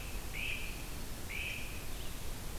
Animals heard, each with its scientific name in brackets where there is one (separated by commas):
Great Crested Flycatcher (Myiarchus crinitus)